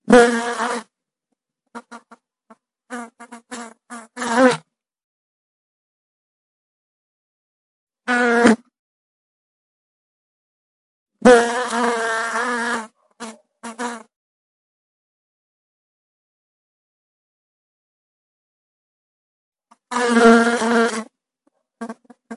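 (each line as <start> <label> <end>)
0.0 A fly buzzes piercingly. 0.9
1.7 A fly buzzes erratically. 4.7
8.0 A fly buzzes piercingly. 8.6
11.2 A fly buzzes erratically. 14.1
19.9 A fly buzzes erratically. 22.4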